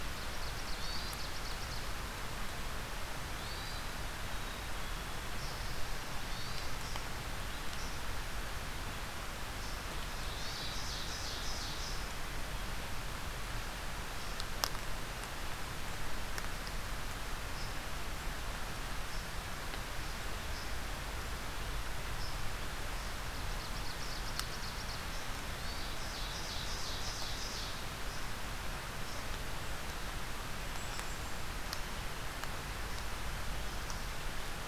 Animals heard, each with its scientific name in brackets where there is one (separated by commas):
unidentified call, Black-capped Chickadee (Poecile atricapillus), Hermit Thrush (Catharus guttatus), Ovenbird (Seiurus aurocapilla)